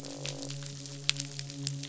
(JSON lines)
{"label": "biophony, midshipman", "recorder": "SoundTrap 500"}
{"label": "biophony, croak", "recorder": "SoundTrap 500"}